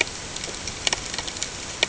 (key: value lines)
label: ambient
recorder: HydroMoth